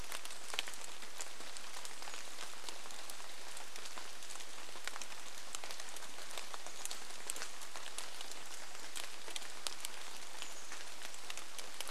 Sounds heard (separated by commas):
rain, Chestnut-backed Chickadee call, Brown Creeper call